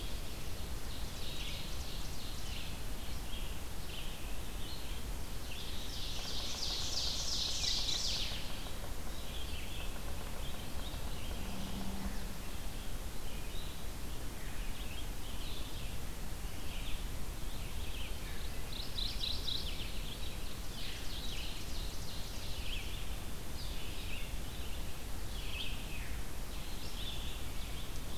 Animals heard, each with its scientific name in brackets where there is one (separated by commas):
Mourning Warbler (Geothlypis philadelphia), Red-eyed Vireo (Vireo olivaceus), Chestnut-sided Warbler (Setophaga pensylvanica), Ovenbird (Seiurus aurocapilla), Yellow-bellied Sapsucker (Sphyrapicus varius), Veery (Catharus fuscescens)